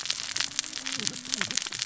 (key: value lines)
label: biophony, cascading saw
recorder: SoundTrap 600 or HydroMoth